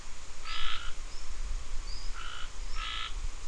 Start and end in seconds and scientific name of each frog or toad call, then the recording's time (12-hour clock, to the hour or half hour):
0.4	1.0	Scinax perereca
2.2	3.4	Scinax perereca
~6pm